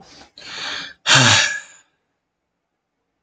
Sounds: Sigh